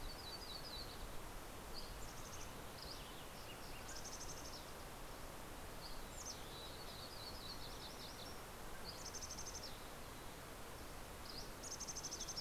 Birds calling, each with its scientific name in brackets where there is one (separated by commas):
Mountain Chickadee (Poecile gambeli), Yellow-rumped Warbler (Setophaga coronata), Mountain Quail (Oreortyx pictus), Dusky Flycatcher (Empidonax oberholseri)